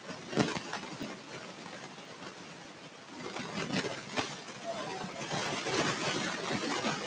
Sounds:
Sigh